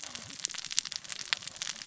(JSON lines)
{"label": "biophony, cascading saw", "recorder": "SoundTrap 600 or HydroMoth"}